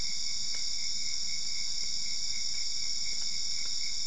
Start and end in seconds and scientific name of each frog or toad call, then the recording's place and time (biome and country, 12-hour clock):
none
Cerrado, Brazil, 1:00am